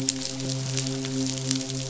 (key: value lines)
label: biophony, midshipman
recorder: SoundTrap 500